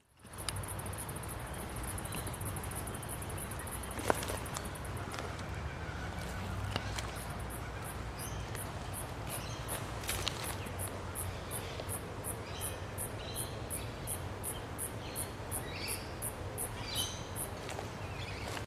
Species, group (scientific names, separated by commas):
Clinopsalta autumna, Cicadidae